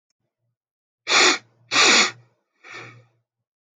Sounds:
Sniff